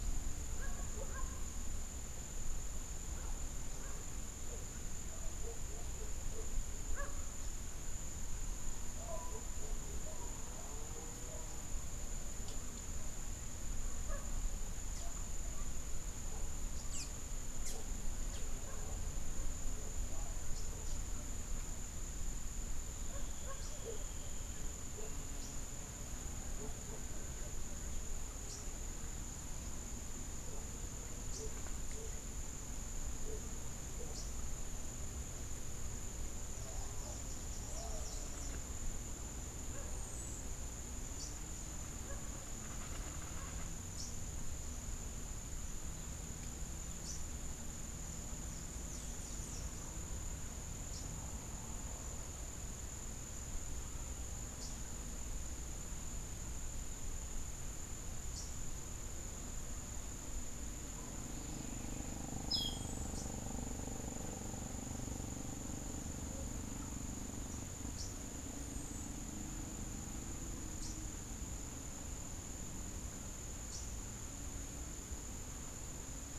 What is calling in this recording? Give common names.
Blue-gray Tanager, Rufous-capped Warbler, Clay-colored Thrush